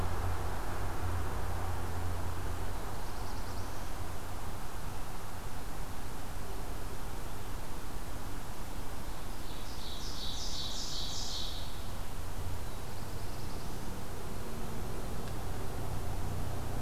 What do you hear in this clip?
Black-throated Blue Warbler, Ovenbird